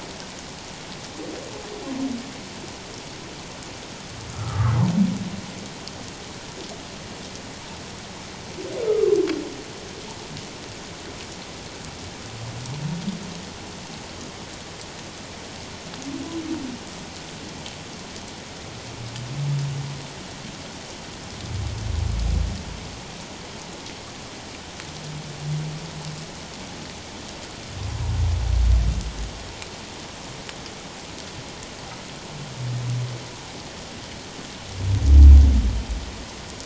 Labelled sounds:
4.3	4.8	humpback whale, 1.0 to 1.5 kHz

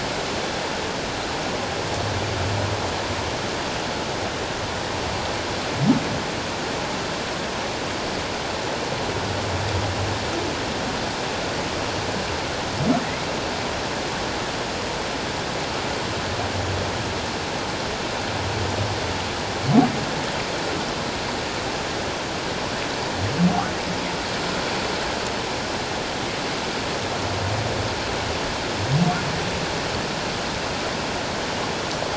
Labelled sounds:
13.0	13.3	humpback whale, 1.7 to 2.3 kHz

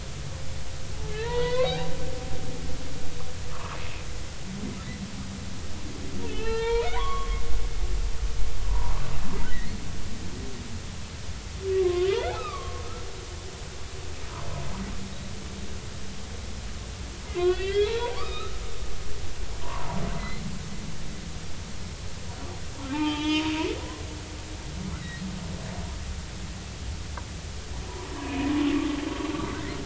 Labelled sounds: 1.1	1.7	humpback whale, 0.83 to 3.6 kHz
2.6	3.8	humpback whale, 0.80 to 1.4 kHz
6.3	7.4	humpback whale, 0.86 to 4.3 kHz
8.7	9.1	humpback whale, 0.90 to 1.3 kHz
9.5	9.7	humpback whale, 1.8 to 2.2 kHz
11.8	12.8	humpback whale, 0.99 to 2.7 kHz
17.3	18.6	humpback whale, 0.83 to 4.1 kHz
19.6	20.4	humpback whale, 0.83 to 2.1 kHz
22.9	23.5	humpback whale, 0.83 to 3.5 kHz
23.8	24.1	humpback whale, 0.96 to 1.1 kHz
24.9	25.3	humpback whale, 1.8 to 2.1 kHz
28.1	28.5	humpback whale, 2.4 to 2.6 kHz

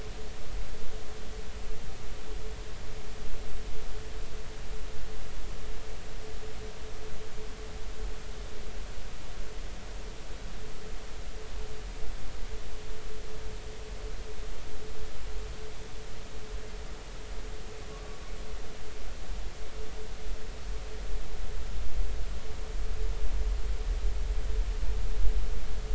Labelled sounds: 17.9	18.2	humpback whale, 1.1 to 1.2 kHz

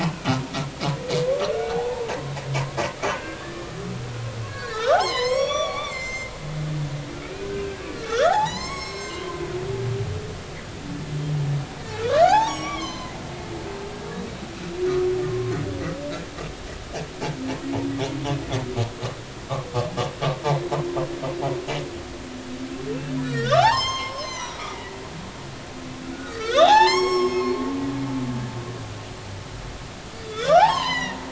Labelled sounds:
1.2	2.2	humpback whale, 0.80 to 1.5 kHz
3.1	3.7	humpback whale, 1.4 to 2.1 kHz
4.5	6.3	humpback whale, 0.80 to 7.9 kHz
7.2	9.4	humpback whale, 0.80 to 7.8 kHz
12.0	13.2	humpback whale, 0.80 to 6.8 kHz
15.3	15.5	humpback whale, 1.0 to 1.1 kHz
23.2	25.0	humpback whale, 0.80 to 7.5 kHz
26.2	27.6	humpback whale, 0.80 to 7.7 kHz
30.2	31.2	humpback whale, 0.80 to 6.7 kHz

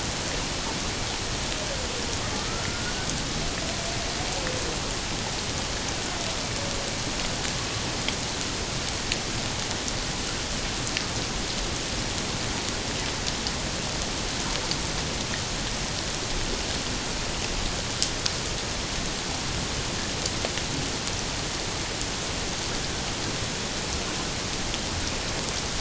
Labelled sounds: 2.4	2.9	killer whale, 1.2 to 1.5 kHz

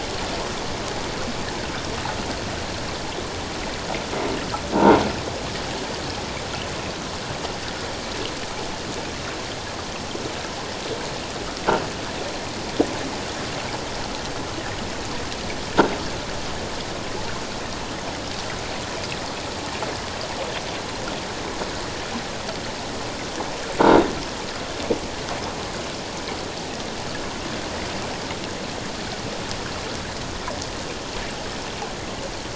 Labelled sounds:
23.8	24.1	croaking sound likely from a nearby submerged object, 3.7 to 3.8 kHz

